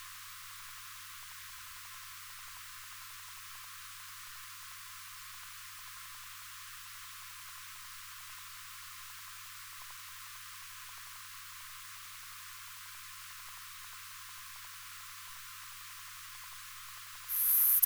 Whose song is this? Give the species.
Poecilimon sanctipauli